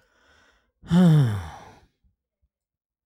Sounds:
Sigh